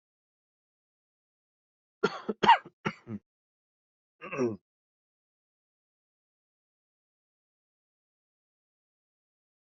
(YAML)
expert_labels:
- quality: ok
  cough_type: dry
  dyspnea: false
  wheezing: true
  stridor: false
  choking: false
  congestion: false
  nothing: false
  diagnosis: COVID-19
  severity: mild
age: 40
gender: male
respiratory_condition: false
fever_muscle_pain: false
status: healthy